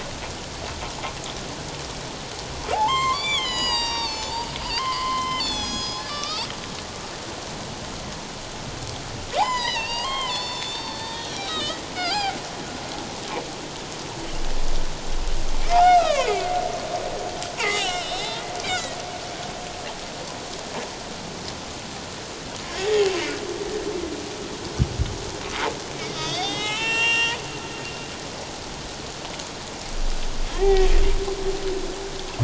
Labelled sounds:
2.7	6.5	humpback whale, 0.78 to 8.0 kHz
9.3	12.4	humpback whale, 0.78 to 7.2 kHz
15.7	16.6	humpback whale, 0.78 to 3.9 kHz
17.6	19.0	humpback whale, 0.78 to 5.4 kHz
22.8	23.2	humpback whale, 1.8 to 2.8 kHz
26.1	27.4	humpback whale, 0.81 to 7.5 kHz
30.5	30.9	humpback whale, 0.78 to 2.4 kHz

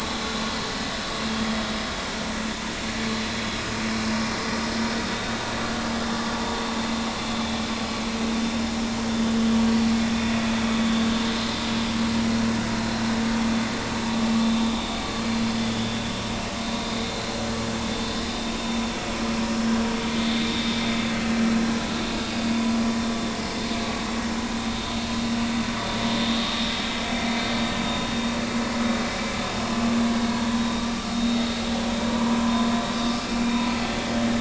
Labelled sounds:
5.1	5.4	vessel noise, 3.6 to 3.9 kHz
7.2	7.4	vessel noise, 3.4 to 3.6 kHz
9.7	9.9	vessel noise, 4.4 to 4.6 kHz
14.6	15.0	vessel noise, 3.6 to 3.8 kHz
22.2	22.5	vessel noise, 4.8 to 5.0 kHz
31.1	31.4	vessel noise, 3.7 to 3.8 kHz
32.4	32.7	vessel noise, 0.96 to 1.1 kHz
33.3	33.5	vessel noise, 2.3 to 2.5 kHz

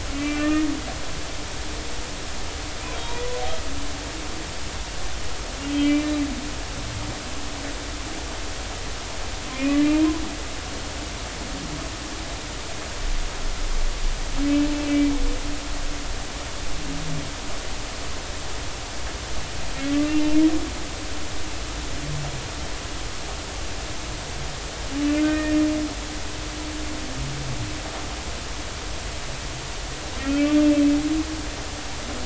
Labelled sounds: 0.1	0.7	humpback whale, 1.7 to 2.5 kHz
3.0	3.3	humpback whale, 0.90 to 0.99 kHz
5.7	6.1	humpback whale, 2.0 to 3.2 kHz
9.5	10.2	humpback whale, 0.90 to 2.6 kHz
14.8	15.1	humpback whale, 2.2 to 2.4 kHz
25.1	25.6	humpback whale, 1.4 to 2.5 kHz
30.2	30.6	humpback whale, 2.2 to 2.8 kHz

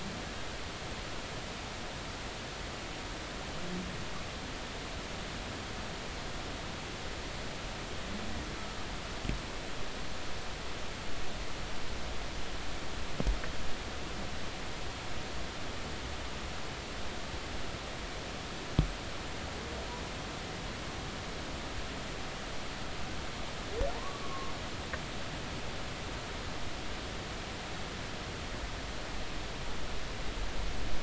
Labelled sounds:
23.9	24.5	humpback whale, 0.83 to 1.2 kHz

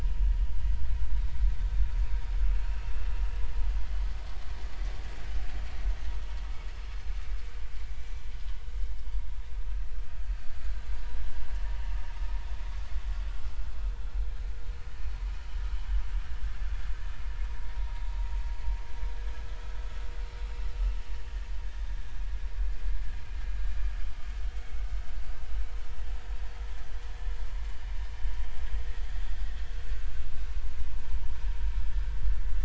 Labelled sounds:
2.7	2.9	vessel noise, 2.6 to 2.8 kHz

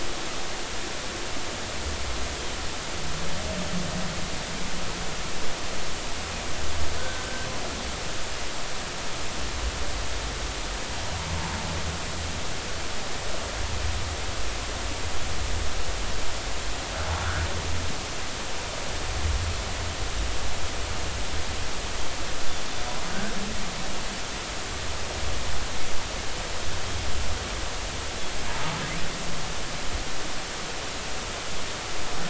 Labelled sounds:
7.0	7.2	humpback whale, 1.4 to 1.7 kHz

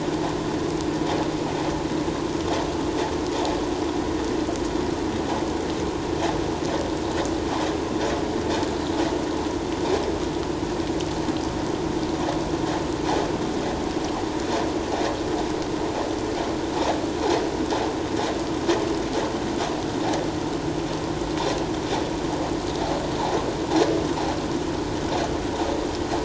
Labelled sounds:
8.7	9.0	vessel noise, 3.8 to 4.1 kHz

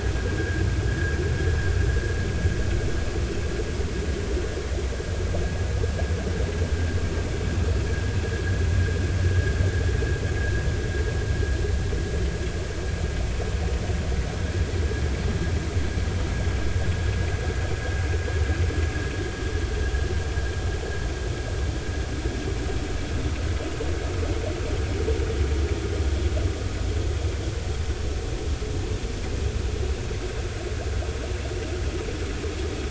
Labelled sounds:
0.4	0.6	vessel noise, 1.4 to 1.7 kHz

